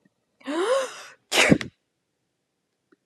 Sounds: Sneeze